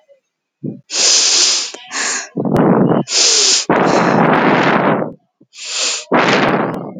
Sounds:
Sniff